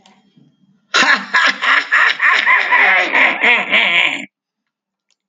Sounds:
Laughter